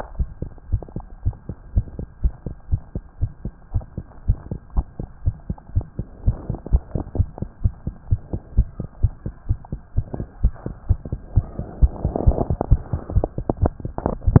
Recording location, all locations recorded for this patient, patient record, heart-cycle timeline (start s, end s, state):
tricuspid valve (TV)
aortic valve (AV)+pulmonary valve (PV)+tricuspid valve (TV)+mitral valve (MV)
#Age: Child
#Sex: Male
#Height: 99.0 cm
#Weight: 15.1 kg
#Pregnancy status: False
#Murmur: Absent
#Murmur locations: nan
#Most audible location: nan
#Systolic murmur timing: nan
#Systolic murmur shape: nan
#Systolic murmur grading: nan
#Systolic murmur pitch: nan
#Systolic murmur quality: nan
#Diastolic murmur timing: nan
#Diastolic murmur shape: nan
#Diastolic murmur grading: nan
#Diastolic murmur pitch: nan
#Diastolic murmur quality: nan
#Outcome: Normal
#Campaign: 2015 screening campaign
0.00	2.66	unannotated
2.66	2.82	S1
2.82	2.92	systole
2.92	3.02	S2
3.02	3.18	diastole
3.18	3.30	S1
3.30	3.42	systole
3.42	3.51	S2
3.51	3.69	diastole
3.69	3.84	S1
3.84	3.94	systole
3.94	4.03	S2
4.03	4.23	diastole
4.23	4.37	S1
4.37	4.49	systole
4.49	4.60	S2
4.60	4.73	diastole
4.73	4.84	S1
4.84	4.97	systole
4.97	5.08	S2
5.08	5.23	diastole
5.23	5.35	S1
5.35	5.46	systole
5.46	5.59	S2
5.59	5.72	diastole
5.72	5.85	S1
5.85	5.96	systole
5.96	6.04	S2
6.04	6.23	diastole
6.23	6.37	S1
6.37	6.47	systole
6.47	6.58	S2
6.58	6.70	diastole
6.70	6.82	S1
6.82	6.93	systole
6.93	7.01	S2
7.01	7.14	diastole
7.14	7.27	S1
7.27	7.38	systole
7.38	7.50	S2
7.50	7.60	diastole
7.60	7.74	S1
7.74	7.85	systole
7.85	7.93	S2
7.93	8.07	diastole
8.07	8.20	S1
8.20	8.31	systole
8.31	8.40	S2
8.40	8.54	diastole
8.54	8.66	S1
8.66	14.40	unannotated